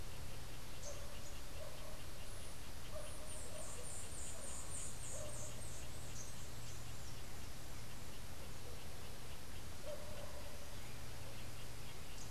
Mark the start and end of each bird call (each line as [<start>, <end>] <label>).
[2.82, 6.92] White-eared Ground-Sparrow (Melozone leucotis)